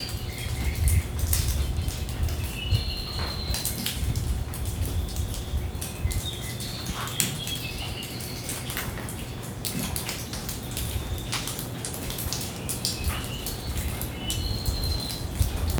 How many showers or faucets are on?
one